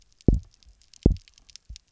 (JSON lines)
{"label": "biophony, double pulse", "recorder": "SoundTrap 300"}